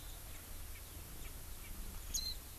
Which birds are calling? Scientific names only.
Alauda arvensis, Zosterops japonicus